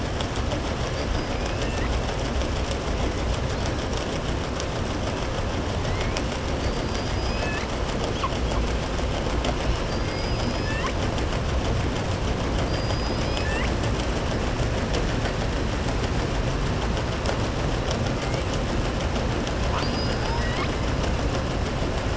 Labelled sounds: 9.8	11.0	killer whale, southern resident, 4.3 to 6.3 kHz
19.6	20.7	killer whale, southern resident, 0.91 to 5.7 kHz

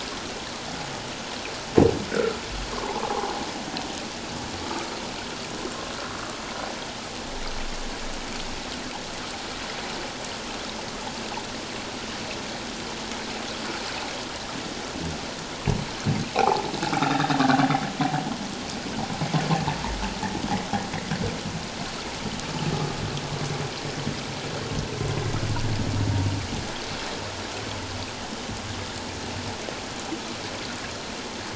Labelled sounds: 2.7	3.1	humpback whale, 0.78 to 1.2 kHz
16.3	17.7	humpback whale, 0.78 to 3.8 kHz
18.1	18.4	humpback whale, 3.2 to 3.4 kHz

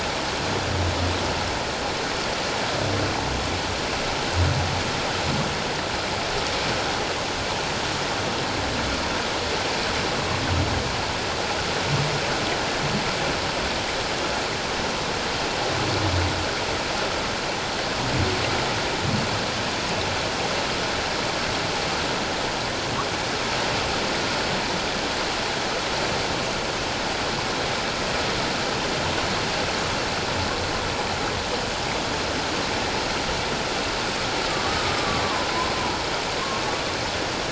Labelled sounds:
34.7	35.2	humpback whale, 1.1 to 1.3 kHz

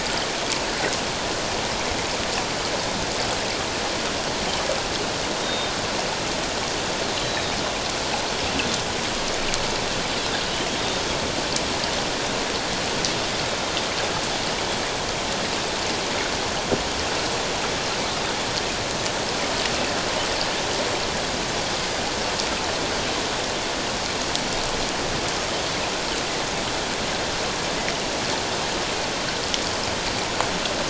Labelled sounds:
5.4	5.7	Pacific white-sided dolphin, 3.6 to 3.8 kHz
7.1	7.6	Pacific white-sided dolphin, 3.7 to 4.1 kHz

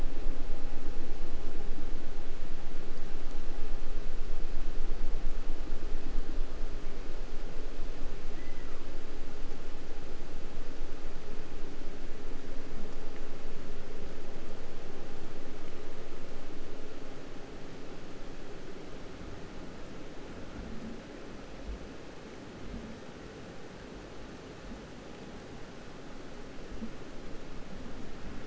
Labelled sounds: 8.2	9.0	killer whale, 0.30 to 2.4 kHz

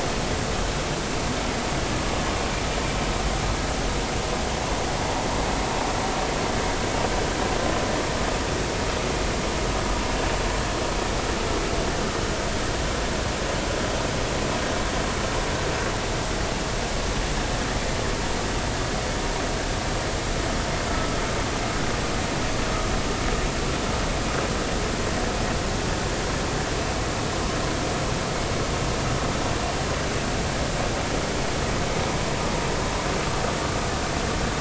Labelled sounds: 20.9	21.2	vessel noise, 1.2 to 1.3 kHz

